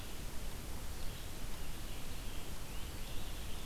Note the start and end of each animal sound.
[0.78, 3.65] Red-eyed Vireo (Vireo olivaceus)

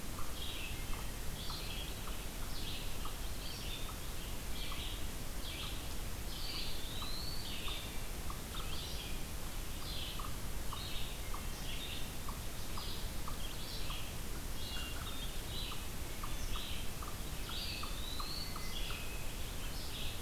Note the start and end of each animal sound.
[0.00, 20.22] unknown mammal
[0.21, 20.22] Red-eyed Vireo (Vireo olivaceus)
[6.23, 7.53] Eastern Wood-Pewee (Contopus virens)
[17.37, 18.59] Eastern Wood-Pewee (Contopus virens)
[18.39, 19.47] Hermit Thrush (Catharus guttatus)

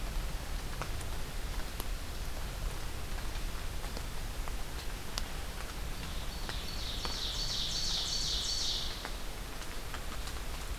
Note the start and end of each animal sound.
[6.11, 9.06] Ovenbird (Seiurus aurocapilla)

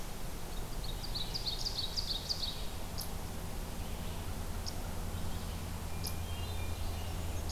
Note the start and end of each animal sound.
[0.00, 7.52] Red-eyed Vireo (Vireo olivaceus)
[0.00, 7.52] unknown mammal
[0.55, 2.88] Ovenbird (Seiurus aurocapilla)
[5.79, 7.24] Hermit Thrush (Catharus guttatus)

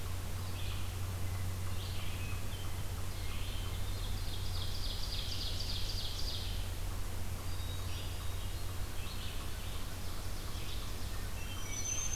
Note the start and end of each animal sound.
[0.00, 12.16] Red-eyed Vireo (Vireo olivaceus)
[3.04, 4.48] Hermit Thrush (Catharus guttatus)
[3.36, 6.68] Ovenbird (Seiurus aurocapilla)
[7.30, 8.91] Hermit Thrush (Catharus guttatus)
[9.74, 11.51] Ovenbird (Seiurus aurocapilla)
[10.99, 12.16] Hermit Thrush (Catharus guttatus)
[11.06, 12.16] Black-throated Green Warbler (Setophaga virens)

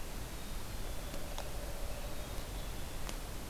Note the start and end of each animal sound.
[0.27, 1.22] Black-capped Chickadee (Poecile atricapillus)
[0.93, 2.26] Pileated Woodpecker (Dryocopus pileatus)
[2.01, 2.89] Black-capped Chickadee (Poecile atricapillus)

